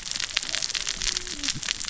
{"label": "biophony, cascading saw", "recorder": "SoundTrap 600 or HydroMoth"}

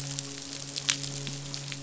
{"label": "biophony, midshipman", "recorder": "SoundTrap 500"}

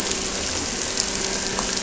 {"label": "anthrophony, boat engine", "recorder": "SoundTrap 300"}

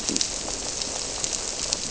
{"label": "biophony", "recorder": "SoundTrap 300"}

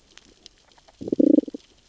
{"label": "biophony, sea urchins (Echinidae)", "recorder": "SoundTrap 600 or HydroMoth"}
{"label": "biophony, damselfish", "recorder": "SoundTrap 600 or HydroMoth"}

